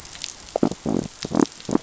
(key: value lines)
label: biophony
recorder: SoundTrap 500